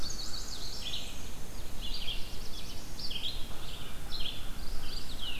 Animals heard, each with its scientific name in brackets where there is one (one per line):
Black-and-white Warbler (Mniotilta varia)
Black-throated Blue Warbler (Setophaga caerulescens)
Chestnut-sided Warbler (Setophaga pensylvanica)
American Crow (Corvus brachyrhynchos)
Red-eyed Vireo (Vireo olivaceus)
Mourning Warbler (Geothlypis philadelphia)